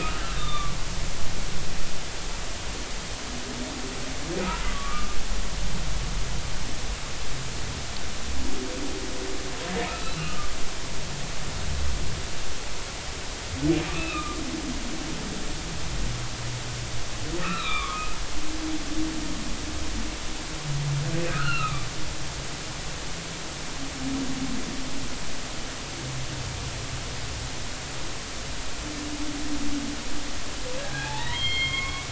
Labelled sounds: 0.0	0.8	humpback whale, 1.1 to 3.8 kHz
4.4	5.1	humpback whale, 1.1 to 1.4 kHz
9.9	10.5	humpback whale, 1.1 to 1.4 kHz
13.9	14.4	humpback whale, 1.1 to 2.7 kHz
17.4	18.1	humpback whale, 1.0 to 4.1 kHz
21.3	21.9	humpback whale, 1.1 to 4.4 kHz
30.8	32.1	humpback whale, 0.80 to 4.4 kHz

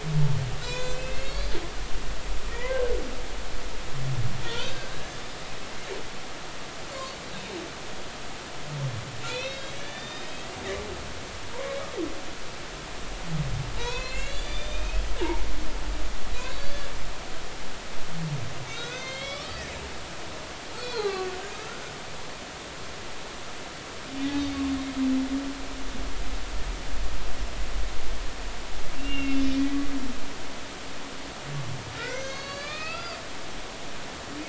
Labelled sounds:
0.6	1.5	humpback whale, 0.93 to 7.3 kHz
2.5	2.9	humpback whale, 1.5 to 2.1 kHz
4.5	5.2	humpback whale, 1.3 to 1.8 kHz
9.2	10.3	humpback whale, 1.7 to 6.1 kHz
13.8	15.4	humpback whale, 0.80 to 7.6 kHz
16.5	16.9	humpback whale, 3.4 to 4.6 kHz
18.7	19.7	humpback whale, 1.3 to 6.3 kHz
20.7	21.3	humpback whale, 0.80 to 4.5 kHz
21.5	21.8	humpback whale, 1.2 to 1.5 kHz
24.2	24.6	humpback whale, 3.5 to 4.6 kHz
29.0	29.6	humpback whale, 2.1 to 5.2 kHz
31.9	33.2	humpback whale, 1.0 to 6.7 kHz

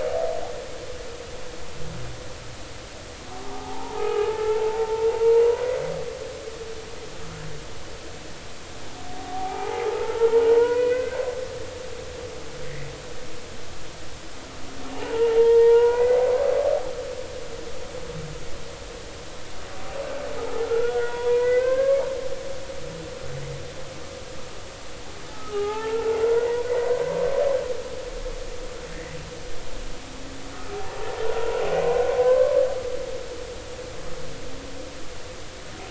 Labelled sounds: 3.5	4.8	humpback whale, 0.80 to 3.0 kHz
5.4	5.7	humpback whale, 0.93 to 1.1 kHz
9.2	11.2	humpback whale, 0.80 to 2.6 kHz
14.9	16.2	humpback whale, 0.80 to 2.6 kHz
20.7	22.0	humpback whale, 0.90 to 2.2 kHz
25.3	26.9	humpback whale, 0.80 to 2.0 kHz
28.9	29.2	humpback whale, 1.8 to 2.1 kHz
31.4	31.6	humpback whale, 0.90 to 1.1 kHz
32.2	32.6	humpback whale, 0.96 to 1.6 kHz

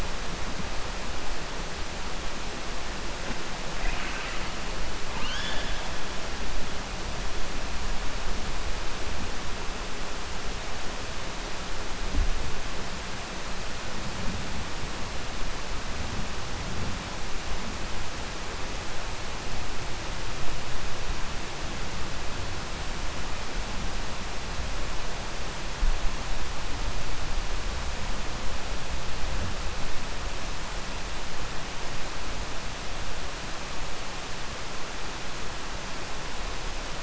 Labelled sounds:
3.7	4.5	killer whale, 0.72 to 3.0 kHz
5.1	5.8	killer whale, 0.86 to 6.8 kHz

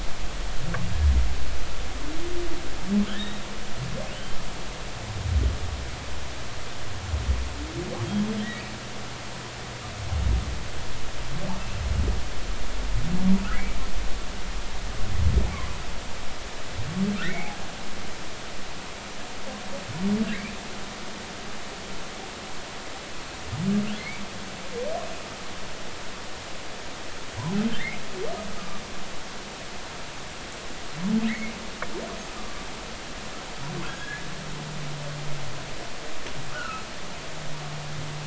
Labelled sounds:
3.1	3.4	humpback whale, 1.4 to 3.9 kHz
13.5	13.8	humpback whale, 1.9 to 2.4 kHz
17.2	17.5	humpback whale, 1.7 to 2.6 kHz
20.2	20.6	humpback whale, 1.6 to 2.6 kHz
27.7	28.8	humpback whale, 1.1 to 2.6 kHz
31.3	31.5	humpback whale, 1.8 to 2.3 kHz
32.4	32.7	humpback whale, 1.1 to 1.2 kHz
33.9	34.2	humpback whale, 1.5 to 1.8 kHz
36.5	36.8	humpback whale, 1.2 to 3.0 kHz

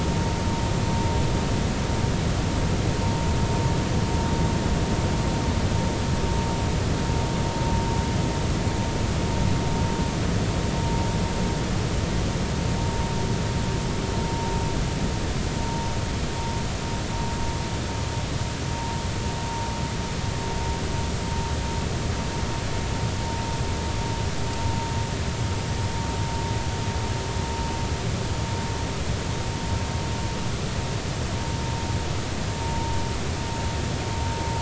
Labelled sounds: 32.6	33.0	vessel noise, 0.90 to 0.99 kHz

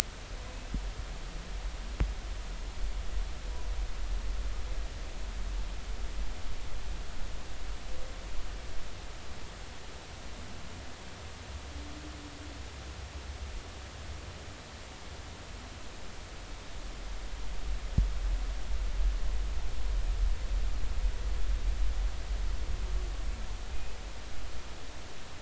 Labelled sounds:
23.7	24.0	humpback whale, 2.4 to 2.6 kHz

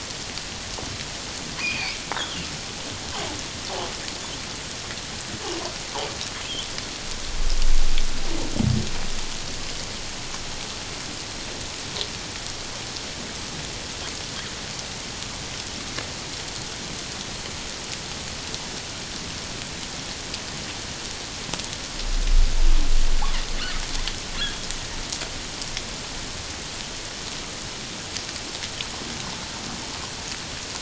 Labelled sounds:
1.6	2.0	humpback whale, 2.2 to 2.6 kHz

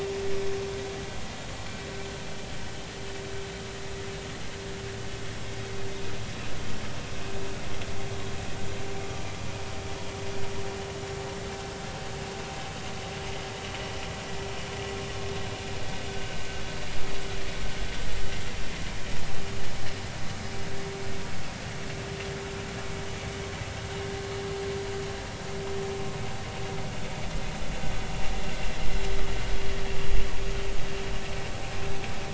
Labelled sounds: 27.0	27.2	vessel noise, 3.4 to 3.6 kHz

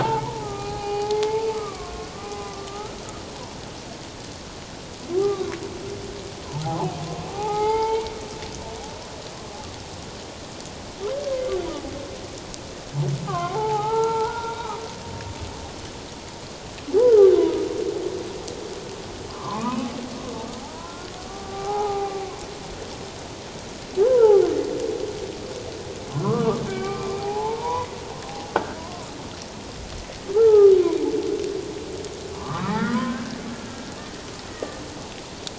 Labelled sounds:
0.0	2.1	humpback whale, 0.78 to 4.2 kHz
2.4	3.0	humpback whale, 1.1 to 1.4 kHz
5.1	5.5	humpback whale, 1.0 to 1.2 kHz
6.6	6.9	humpback whale, 0.78 to 1.1 kHz
7.3	8.1	humpback whale, 0.78 to 4.9 kHz
13.3	14.6	humpback whale, 0.78 to 4.1 kHz
17.0	17.3	humpback whale, 1.1 to 1.5 kHz
19.3	19.9	humpback whale, 0.91 to 1.3 kHz
20.8	22.1	humpback whale, 0.78 to 1.5 kHz
24.0	24.4	humpback whale, 0.78 to 1.7 kHz
26.1	27.9	humpback whale, 0.78 to 2.4 kHz
28.3	29.1	humpback whale, 0.78 to 1.1 kHz
30.3	30.7	humpback whale, 0.78 to 1.5 kHz
32.3	33.2	humpback whale, 0.94 to 1.7 kHz
34.5	34.8	humpback whale, 1.1 to 2.0 kHz

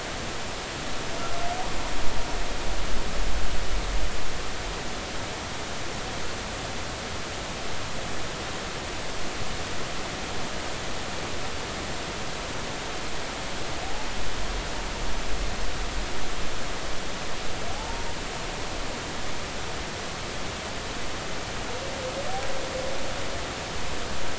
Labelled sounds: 17.7	18.1	humpback whale, 0.80 to 0.99 kHz

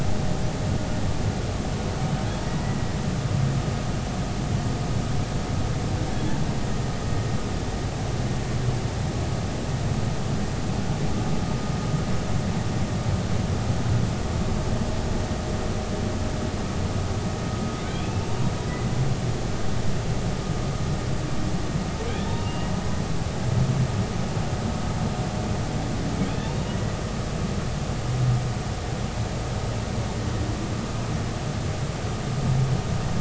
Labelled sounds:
17.8	18.3	humpback whale, 2.0 to 2.7 kHz
22.0	23.0	humpback whale, 0.96 to 3.6 kHz
26.3	26.6	humpback whale, 2.4 to 2.8 kHz

